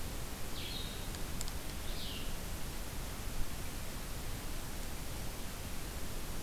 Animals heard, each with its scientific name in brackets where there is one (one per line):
Blue-headed Vireo (Vireo solitarius)